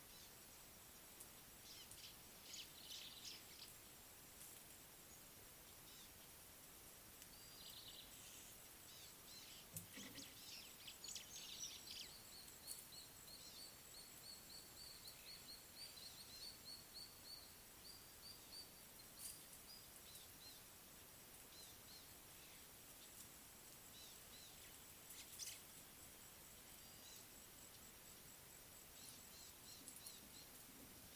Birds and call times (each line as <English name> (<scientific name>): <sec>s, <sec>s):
Eastern Violet-backed Sunbird (Anthreptes orientalis): 6.0s, 9.0s, 20.2s, 21.7s, 24.4s, 29.7s
Brown-tailed Chat (Oenanthe scotocerca): 7.9s
White-browed Sparrow-Weaver (Plocepasser mahali): 10.9s, 25.4s
Rufous Chatterer (Argya rubiginosa): 13.0s, 14.9s, 16.5s